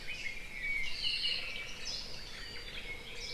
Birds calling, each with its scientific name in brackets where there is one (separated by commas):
Red-billed Leiothrix (Leiothrix lutea), Apapane (Himatione sanguinea), Hawaii Creeper (Loxops mana), Omao (Myadestes obscurus)